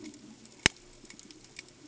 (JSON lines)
{"label": "ambient", "recorder": "HydroMoth"}